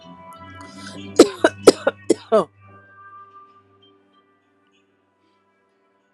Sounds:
Cough